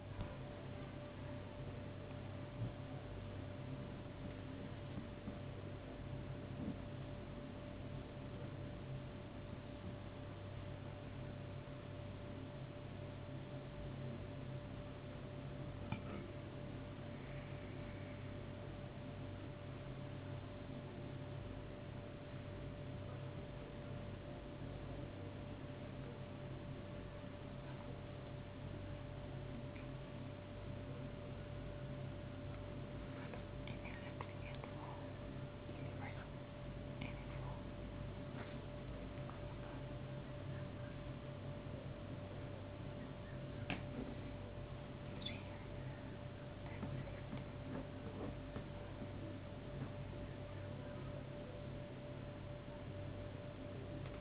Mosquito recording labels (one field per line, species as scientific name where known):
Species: no mosquito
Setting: insect culture